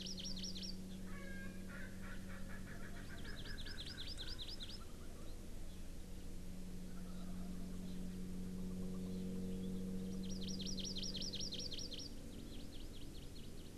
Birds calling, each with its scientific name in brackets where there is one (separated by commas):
Hawaii Amakihi (Chlorodrepanis virens), Erckel's Francolin (Pternistis erckelii)